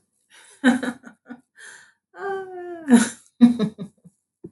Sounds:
Laughter